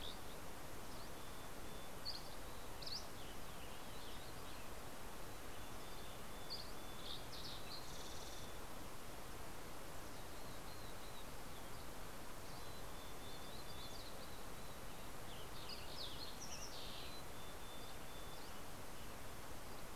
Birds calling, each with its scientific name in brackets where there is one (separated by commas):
Yellow-rumped Warbler (Setophaga coronata), Western Tanager (Piranga ludoviciana), Dusky Flycatcher (Empidonax oberholseri), Fox Sparrow (Passerella iliaca), Mountain Chickadee (Poecile gambeli)